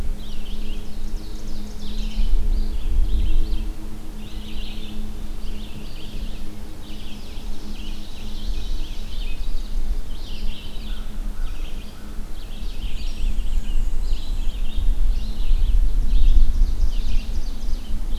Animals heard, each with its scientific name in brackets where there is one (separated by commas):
American Crow (Corvus brachyrhynchos), Ovenbird (Seiurus aurocapilla), Red-eyed Vireo (Vireo olivaceus), Black-and-white Warbler (Mniotilta varia)